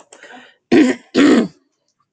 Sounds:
Throat clearing